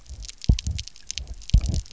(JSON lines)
{"label": "biophony, double pulse", "recorder": "SoundTrap 300"}